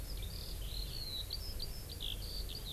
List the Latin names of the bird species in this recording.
Alauda arvensis